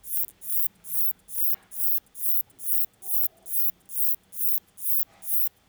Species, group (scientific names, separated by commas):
Uromenus brevicollis, Orthoptera